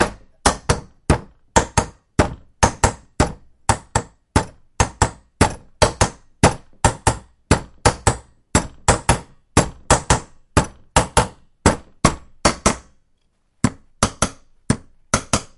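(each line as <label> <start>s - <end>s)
Rhythmic banging and hitting of different materials against each other. 0.0s - 15.6s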